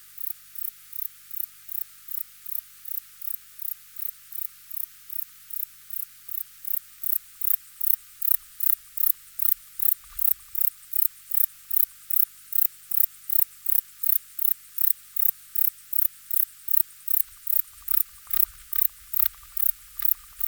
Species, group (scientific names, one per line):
Platycleis sabulosa
Orthoptera